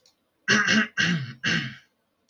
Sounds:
Throat clearing